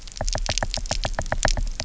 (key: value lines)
label: biophony, knock
recorder: SoundTrap 300